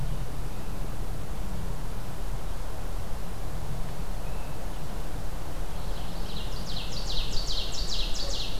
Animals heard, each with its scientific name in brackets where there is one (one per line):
Ovenbird (Seiurus aurocapilla)